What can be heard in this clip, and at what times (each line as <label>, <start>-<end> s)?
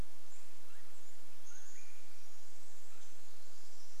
Chestnut-backed Chickadee call, 0-2 s
unidentified bird chip note, 0-2 s
Swainson's Thrush call, 0-4 s
Pacific Wren song, 2-4 s